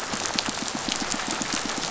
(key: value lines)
label: biophony, pulse
recorder: SoundTrap 500